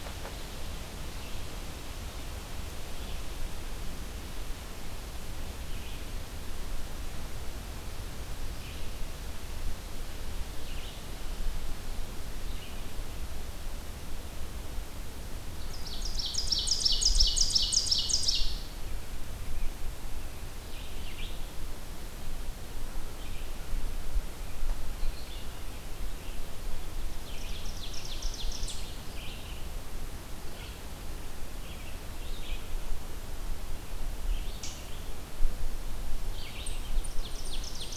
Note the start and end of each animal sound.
[0.00, 19.84] Red-eyed Vireo (Vireo olivaceus)
[15.40, 18.82] Ovenbird (Seiurus aurocapilla)
[20.53, 37.96] Red-eyed Vireo (Vireo olivaceus)
[26.80, 28.94] Ovenbird (Seiurus aurocapilla)
[34.49, 34.79] Eastern Chipmunk (Tamias striatus)
[36.83, 37.96] Ovenbird (Seiurus aurocapilla)

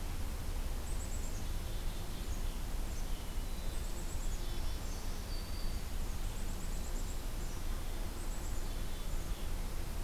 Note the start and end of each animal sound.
[0.77, 2.36] Black-capped Chickadee (Poecile atricapillus)
[2.98, 4.63] Hermit Thrush (Catharus guttatus)
[3.65, 4.87] Black-capped Chickadee (Poecile atricapillus)
[4.54, 5.95] Black-throated Green Warbler (Setophaga virens)
[6.14, 9.54] Black-capped Chickadee (Poecile atricapillus)

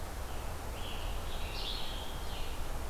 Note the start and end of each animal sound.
[0.00, 2.90] Red-eyed Vireo (Vireo olivaceus)
[0.15, 2.65] Scarlet Tanager (Piranga olivacea)

